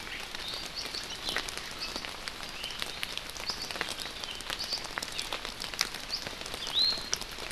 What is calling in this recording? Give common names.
Iiwi